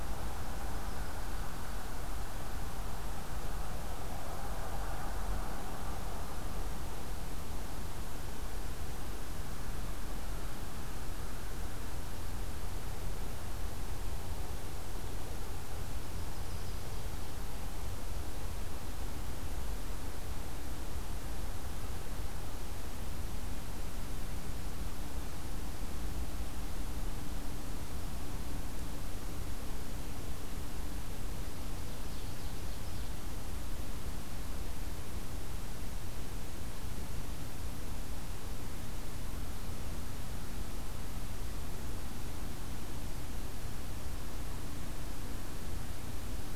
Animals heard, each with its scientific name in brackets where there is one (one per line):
Yellow-rumped Warbler (Setophaga coronata)
Ovenbird (Seiurus aurocapilla)